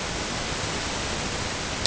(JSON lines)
{"label": "ambient", "recorder": "HydroMoth"}